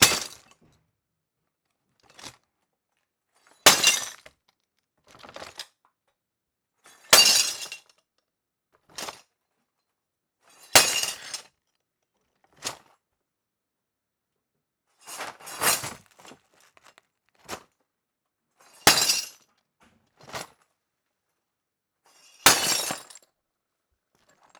Is glass breaking?
yes